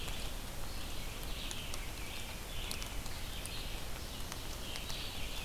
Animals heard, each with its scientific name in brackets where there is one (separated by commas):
Red-eyed Vireo (Vireo olivaceus)